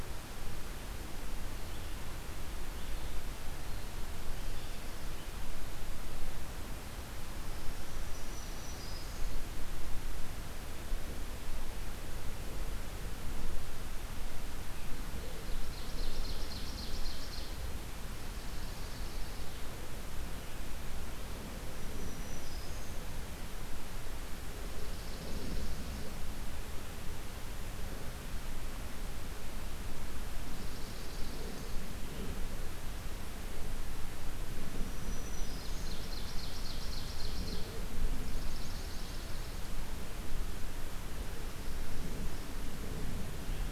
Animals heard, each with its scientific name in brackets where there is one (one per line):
Ovenbird (Seiurus aurocapilla)
Black-throated Green Warbler (Setophaga virens)
Swamp Sparrow (Melospiza georgiana)